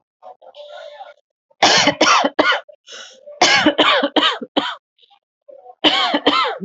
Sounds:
Cough